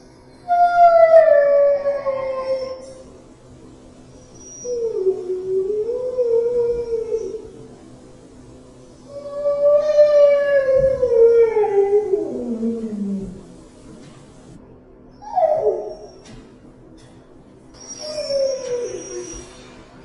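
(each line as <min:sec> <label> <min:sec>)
0:00.4 A husky whines loudly, and the sound gradually fades with a quiet echo. 0:03.1
0:04.5 A husky quietly whines, the sharp whine echoing softly indoors. 0:07.9
0:09.0 A husky loudly whines, with the sound fading over time and a quiet echo suggesting it is indoors. 0:13.7
0:15.2 A husky loudly whines quickly and sharply, with a quiet echo implying it is indoors. 0:16.5
0:17.7 A husky quietly whines, the sharp whine echoing softly indoors. 0:20.0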